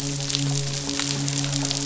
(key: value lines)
label: biophony, midshipman
recorder: SoundTrap 500